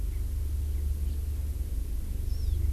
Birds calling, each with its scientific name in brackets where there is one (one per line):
Hawaii Amakihi (Chlorodrepanis virens)
Erckel's Francolin (Pternistis erckelii)